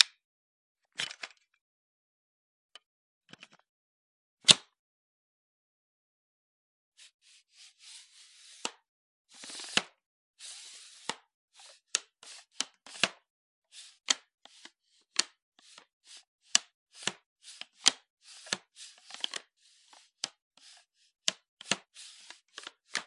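A vacuum cleaner starts running silently in a room. 0.0 - 4.7
A vacuum cleaner adjusting its hose repeatedly in a room. 8.6 - 23.1

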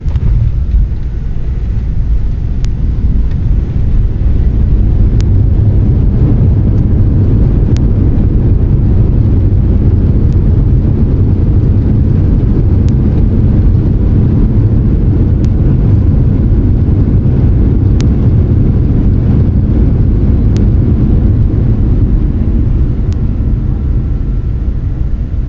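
A continuous, loud roaring of air flowing. 0.0 - 25.5
A plane engine is running loudly in the background. 0.0 - 25.5

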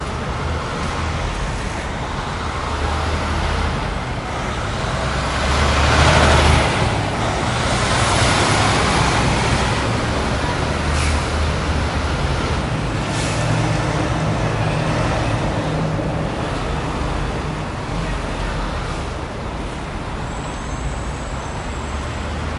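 A truck passes by on a road, starting distant and faint, growing louder as it approaches, then fading away again. 0.0 - 22.6

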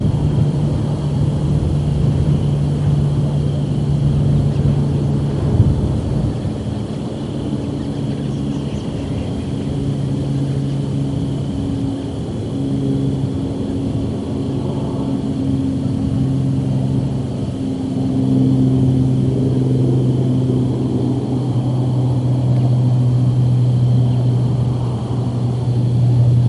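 A plane passes by, sounding hollow and gradually increasing in volume before sustaining. 0.0 - 26.5
Animals chirp quietly as the sounds become muffled. 7.5 - 11.0

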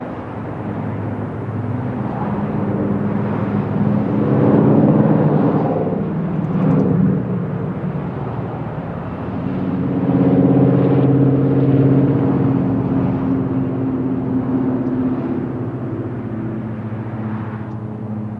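Vehicles passing by with a soft, fading whoosh in the distance. 0.0 - 18.4

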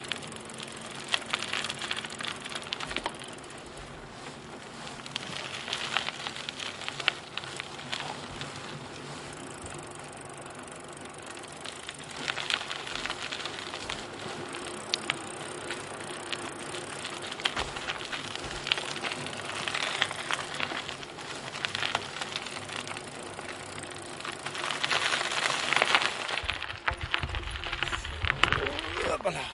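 Soft, silent clicking noises from a bike chain. 0.0 - 3.8
A bike rolls over gravel, producing a crunching noise. 1.0 - 3.3
A rhythmic rustling noise of trousers while walking is faintly heard in the background. 4.1 - 9.6
A bike rolls over gravel, producing a crunching noise. 5.3 - 8.1
Soft, silent clicking noises from a bike chain. 9.3 - 12.1
A bike rolls over gravel, producing a crunching noise. 12.1 - 14.2
Rustling fabric. 12.1 - 14.5
Soft, silent clicking noises from a bike chain. 14.5 - 17.2
A bike rolls over gravel, producing a crunching noise. 17.3 - 29.3
Soft, silent clicking noises from a bike chain. 18.7 - 20.5
Soft, silent clicking noises from a bike chain. 22.5 - 26.3
A person making vocal sounds nearby. 28.5 - 29.5

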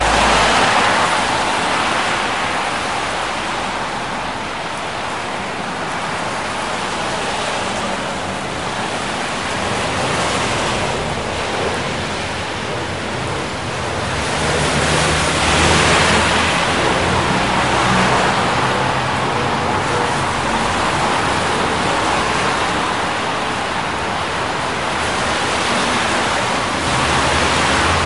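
A bus drives through a rainy urban area with engine noise fluctuating as it passes over different surfaces and slows down occasionally. 0.0 - 27.6

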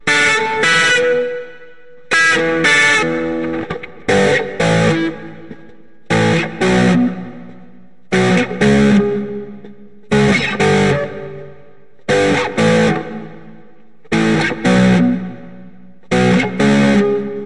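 Electronic guitar notes are playing. 0.0 - 17.5

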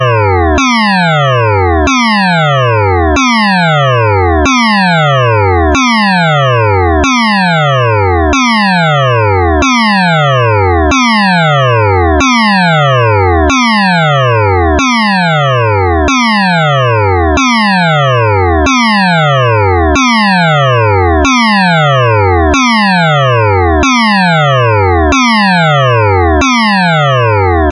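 An alarm sounds repeatedly with high-intensity peaks followed by steady decreases. 0.0 - 27.7

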